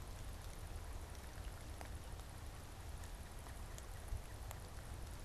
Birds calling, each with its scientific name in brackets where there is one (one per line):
Pileated Woodpecker (Dryocopus pileatus)